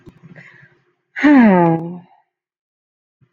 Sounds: Sigh